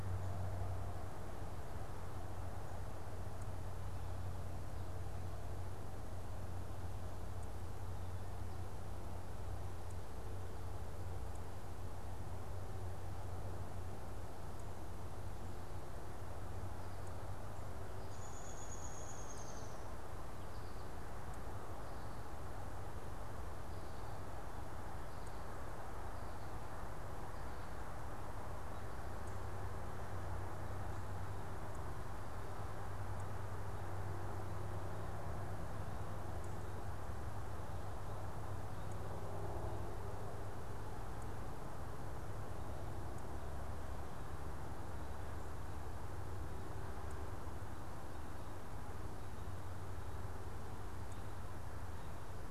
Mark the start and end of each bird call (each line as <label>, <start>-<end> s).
Downy Woodpecker (Dryobates pubescens), 17.9-20.0 s